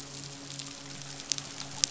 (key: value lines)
label: biophony, midshipman
recorder: SoundTrap 500